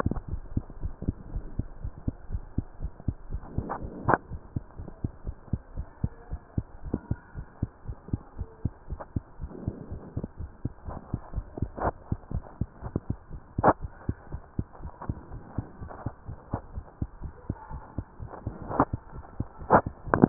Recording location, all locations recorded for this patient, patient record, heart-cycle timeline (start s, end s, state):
mitral valve (MV)
aortic valve (AV)+pulmonary valve (PV)+tricuspid valve (TV)+mitral valve (MV)
#Age: nan
#Sex: Male
#Height: 123.0 cm
#Weight: 29.2 kg
#Pregnancy status: False
#Murmur: Absent
#Murmur locations: nan
#Most audible location: nan
#Systolic murmur timing: nan
#Systolic murmur shape: nan
#Systolic murmur grading: nan
#Systolic murmur pitch: nan
#Systolic murmur quality: nan
#Diastolic murmur timing: nan
#Diastolic murmur shape: nan
#Diastolic murmur grading: nan
#Diastolic murmur pitch: nan
#Diastolic murmur quality: nan
#Outcome: Normal
#Campaign: 2015 screening campaign
0.00	0.64	unannotated
0.64	0.80	diastole
0.80	0.93	S1
0.93	1.02	systole
1.02	1.18	S2
1.18	1.32	diastole
1.32	1.48	S1
1.48	1.56	systole
1.56	1.70	S2
1.70	1.82	diastole
1.82	1.94	S1
1.94	2.04	systole
2.04	2.18	S2
2.18	2.30	diastole
2.30	2.42	S1
2.42	2.54	systole
2.54	2.68	S2
2.68	2.80	diastole
2.80	2.92	S1
2.92	3.04	systole
3.04	3.18	S2
3.18	3.30	diastole
3.30	3.42	S1
3.42	3.54	systole
3.54	3.68	S2
3.68	3.80	diastole
3.80	3.92	S1
3.92	4.06	systole
4.06	4.18	S2
4.18	4.30	diastole
4.30	4.42	S1
4.42	4.52	systole
4.52	4.66	S2
4.66	4.78	diastole
4.78	4.88	S1
4.88	5.00	systole
5.00	5.12	S2
5.12	5.26	diastole
5.26	5.36	S1
5.36	5.48	systole
5.48	5.60	S2
5.60	5.74	diastole
5.74	5.86	S1
5.86	6.00	systole
6.00	6.12	S2
6.12	6.30	diastole
6.30	6.40	S1
6.40	6.54	systole
6.54	6.66	S2
6.66	6.84	diastole
6.84	7.00	S1
7.00	7.08	systole
7.08	7.18	S2
7.18	7.34	diastole
7.34	7.46	S1
7.46	7.58	systole
7.58	7.70	S2
7.70	7.86	diastole
7.86	7.98	S1
7.98	8.10	systole
8.10	8.22	S2
8.22	8.38	diastole
8.38	8.48	S1
8.48	8.64	systole
8.64	8.74	S2
8.74	8.90	diastole
8.90	9.00	S1
9.00	9.12	systole
9.12	9.24	S2
9.24	9.40	diastole
9.40	9.52	S1
9.52	9.64	systole
9.64	9.76	S2
9.76	9.90	diastole
9.90	10.04	S1
10.04	10.18	systole
10.18	10.28	S2
10.28	10.40	diastole
10.40	10.52	S1
10.52	10.64	systole
10.64	10.72	S2
10.72	10.86	diastole
10.86	11.00	S1
11.00	11.12	systole
11.12	11.22	S2
11.22	11.34	diastole
11.34	11.46	S1
11.46	11.58	systole
11.58	11.70	S2
11.70	11.82	diastole
11.82	11.94	S1
11.94	12.08	systole
12.08	12.20	S2
12.20	12.34	diastole
12.34	12.44	S1
12.44	12.60	systole
12.60	12.70	S2
12.70	12.84	diastole
12.84	12.94	S1
12.94	13.06	systole
13.06	13.18	S2
13.18	13.32	diastole
13.32	13.42	S1
13.42	13.56	systole
13.56	13.64	S2
13.64	13.81	diastole
13.81	13.90	S1
13.90	14.05	systole
14.05	14.18	S2
14.18	14.32	diastole
14.32	14.42	S1
14.42	14.58	systole
14.58	14.68	S2
14.68	14.82	diastole
14.82	14.92	S1
14.92	15.08	systole
15.08	15.18	S2
15.18	15.32	diastole
15.32	15.42	S1
15.42	15.54	systole
15.54	15.66	S2
15.66	15.80	diastole
15.80	15.90	S1
15.90	16.02	systole
16.02	16.14	S2
16.14	16.28	diastole
16.28	16.38	S1
16.38	16.52	systole
16.52	16.62	S2
16.62	16.74	diastole
16.74	16.86	S1
16.86	16.98	systole
16.98	17.10	S2
17.10	17.22	diastole
17.22	17.34	S1
17.34	17.48	systole
17.48	17.58	S2
17.58	17.72	diastole
17.72	17.82	S1
17.82	17.94	systole
17.94	18.06	S2
18.06	18.20	diastole
18.20	18.30	S1
18.30	18.42	systole
18.42	18.54	S2
18.54	18.68	diastole
18.68	20.29	unannotated